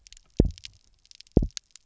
{"label": "biophony, double pulse", "recorder": "SoundTrap 300"}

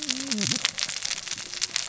{"label": "biophony, cascading saw", "recorder": "SoundTrap 600 or HydroMoth"}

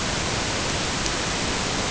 {"label": "ambient", "recorder": "HydroMoth"}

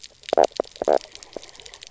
{"label": "biophony, knock croak", "recorder": "SoundTrap 300"}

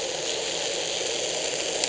{"label": "anthrophony, boat engine", "recorder": "HydroMoth"}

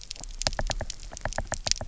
{"label": "biophony, knock", "recorder": "SoundTrap 300"}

